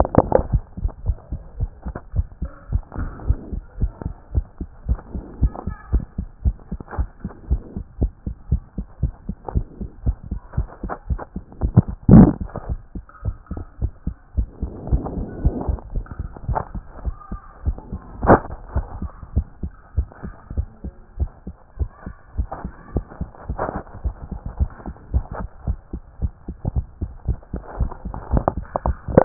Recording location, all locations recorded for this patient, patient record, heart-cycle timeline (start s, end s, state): tricuspid valve (TV)
aortic valve (AV)+pulmonary valve (PV)+tricuspid valve (TV)+mitral valve (MV)
#Age: Child
#Sex: Female
#Height: 149.0 cm
#Weight: 33.7 kg
#Pregnancy status: False
#Murmur: Absent
#Murmur locations: nan
#Most audible location: nan
#Systolic murmur timing: nan
#Systolic murmur shape: nan
#Systolic murmur grading: nan
#Systolic murmur pitch: nan
#Systolic murmur quality: nan
#Diastolic murmur timing: nan
#Diastolic murmur shape: nan
#Diastolic murmur grading: nan
#Diastolic murmur pitch: nan
#Diastolic murmur quality: nan
#Outcome: Normal
#Campaign: 2014 screening campaign
0.00	0.44	unannotated
0.44	0.52	diastole
0.52	0.62	S1
0.62	0.82	systole
0.82	0.90	S2
0.90	1.06	diastole
1.06	1.16	S1
1.16	1.32	systole
1.32	1.40	S2
1.40	1.58	diastole
1.58	1.70	S1
1.70	1.86	systole
1.86	1.94	S2
1.94	2.14	diastole
2.14	2.26	S1
2.26	2.42	systole
2.42	2.50	S2
2.50	2.70	diastole
2.70	2.82	S1
2.82	2.98	systole
2.98	3.10	S2
3.10	3.26	diastole
3.26	3.38	S1
3.38	3.52	systole
3.52	3.62	S2
3.62	3.80	diastole
3.80	3.92	S1
3.92	4.04	systole
4.04	4.14	S2
4.14	4.34	diastole
4.34	4.46	S1
4.46	4.60	systole
4.60	4.68	S2
4.68	4.88	diastole
4.88	5.00	S1
5.00	5.14	systole
5.14	5.22	S2
5.22	5.40	diastole
5.40	5.52	S1
5.52	5.66	systole
5.66	5.76	S2
5.76	5.92	diastole
5.92	6.04	S1
6.04	6.18	systole
6.18	6.28	S2
6.28	6.44	diastole
6.44	6.56	S1
6.56	6.70	systole
6.70	6.80	S2
6.80	6.98	diastole
6.98	7.08	S1
7.08	7.22	systole
7.22	7.32	S2
7.32	7.50	diastole
7.50	7.62	S1
7.62	7.76	systole
7.76	7.84	S2
7.84	8.00	diastole
8.00	8.12	S1
8.12	8.26	systole
8.26	8.34	S2
8.34	8.50	diastole
8.50	8.62	S1
8.62	8.76	systole
8.76	8.86	S2
8.86	9.02	diastole
9.02	9.14	S1
9.14	9.28	systole
9.28	9.36	S2
9.36	9.54	diastole
9.54	9.66	S1
9.66	9.80	systole
9.80	9.90	S2
9.90	10.06	diastole
10.06	10.16	S1
10.16	10.30	systole
10.30	10.40	S2
10.40	10.58	diastole
10.58	10.68	S1
10.68	10.82	systole
10.82	10.92	S2
10.92	11.10	diastole
11.10	11.20	S1
11.20	11.34	systole
11.34	11.42	S2
11.42	11.61	diastole
11.61	29.25	unannotated